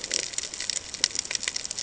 {"label": "ambient", "recorder": "HydroMoth"}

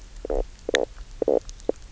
{"label": "biophony, knock croak", "recorder": "SoundTrap 300"}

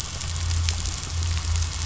{"label": "anthrophony, boat engine", "recorder": "SoundTrap 500"}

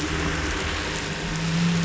{"label": "anthrophony, boat engine", "recorder": "SoundTrap 500"}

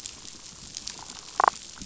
{"label": "biophony, damselfish", "recorder": "SoundTrap 500"}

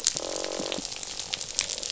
{"label": "biophony, croak", "recorder": "SoundTrap 500"}
{"label": "biophony", "recorder": "SoundTrap 500"}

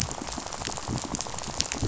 {"label": "biophony, rattle", "recorder": "SoundTrap 500"}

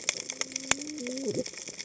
{"label": "biophony, cascading saw", "recorder": "HydroMoth"}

